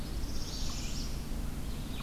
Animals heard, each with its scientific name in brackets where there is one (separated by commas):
Red-eyed Vireo (Vireo olivaceus), Northern Parula (Setophaga americana), unknown mammal